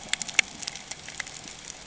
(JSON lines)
{"label": "ambient", "recorder": "HydroMoth"}